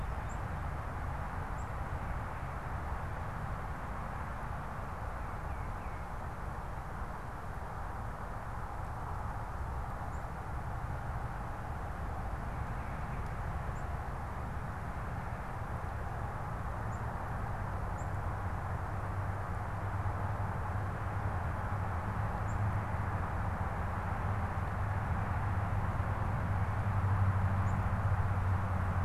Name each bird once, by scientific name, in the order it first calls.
unidentified bird, Baeolophus bicolor